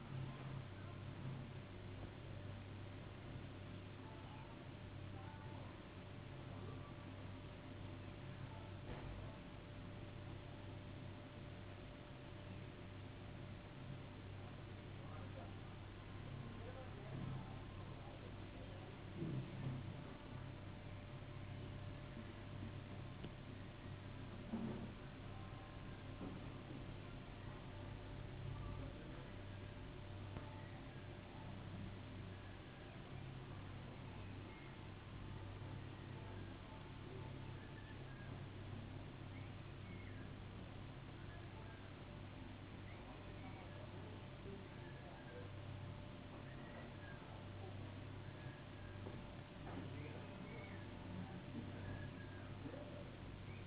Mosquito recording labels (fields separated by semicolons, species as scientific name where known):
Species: no mosquito; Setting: insect culture